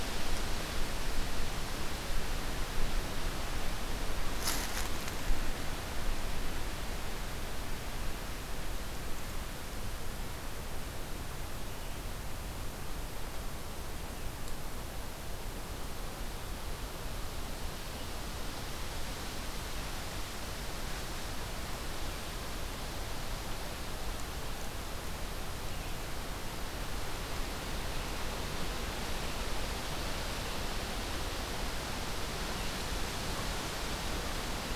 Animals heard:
forest ambience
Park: Katahdin Woods and Waters National Monument